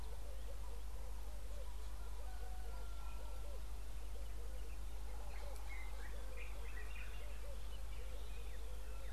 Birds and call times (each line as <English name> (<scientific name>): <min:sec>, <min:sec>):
Common Bulbul (Pycnonotus barbatus): 0:06.6